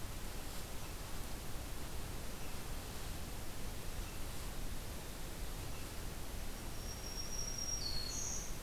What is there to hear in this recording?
Black-throated Green Warbler